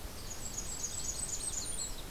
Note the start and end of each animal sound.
0.0s-2.1s: Blackburnian Warbler (Setophaga fusca)
0.1s-2.1s: Chestnut-sided Warbler (Setophaga pensylvanica)

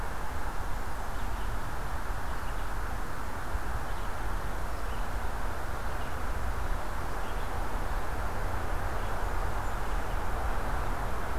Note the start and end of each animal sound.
0.0s-11.4s: Red-eyed Vireo (Vireo olivaceus)

